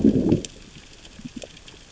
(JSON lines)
{"label": "biophony, growl", "recorder": "SoundTrap 600 or HydroMoth"}